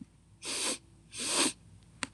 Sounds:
Sniff